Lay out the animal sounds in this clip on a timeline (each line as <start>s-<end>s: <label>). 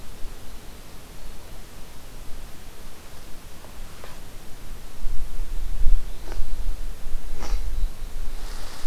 5.4s-6.6s: Black-throated Blue Warbler (Setophaga caerulescens)